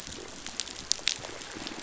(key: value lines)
label: biophony, pulse
recorder: SoundTrap 500